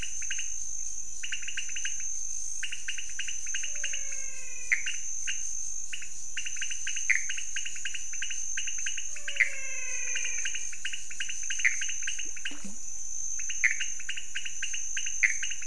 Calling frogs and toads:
pointedbelly frog (Leptodactylus podicipinus), menwig frog (Physalaemus albonotatus), Pithecopus azureus
3:30am

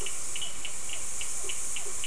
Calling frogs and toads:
blacksmith tree frog (Boana faber), Physalaemus cuvieri, Cochran's lime tree frog (Sphaenorhynchus surdus)
7:00pm

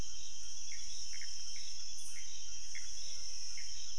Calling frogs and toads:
Pithecopus azureus, rufous frog (Leptodactylus fuscus), menwig frog (Physalaemus albonotatus)
11:30pm

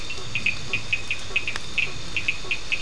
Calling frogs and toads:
blacksmith tree frog (Boana faber), two-colored oval frog (Elachistocleis bicolor), Cochran's lime tree frog (Sphaenorhynchus surdus)
11:15pm

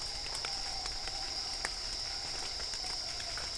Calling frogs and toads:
none
8:30pm

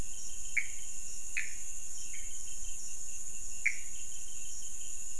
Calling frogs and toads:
Pithecopus azureus
12:30am

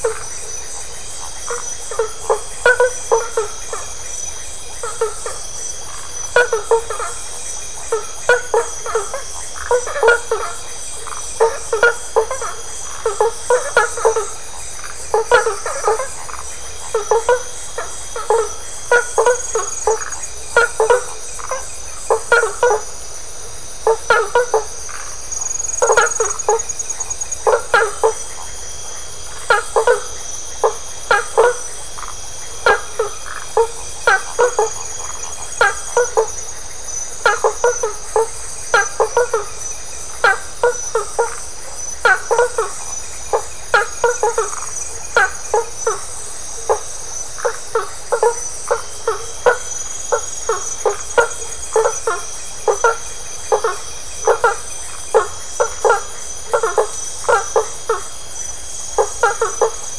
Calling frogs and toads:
blacksmith tree frog (Boana faber), Phyllomedusa distincta
11:30pm

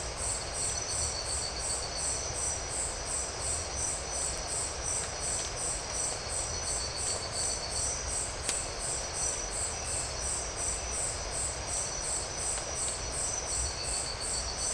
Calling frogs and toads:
none
4:00am

